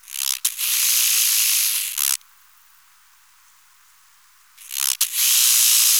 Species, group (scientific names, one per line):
Arcyptera fusca
Orthoptera